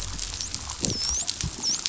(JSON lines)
{"label": "biophony, dolphin", "recorder": "SoundTrap 500"}